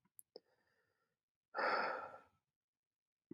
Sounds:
Sigh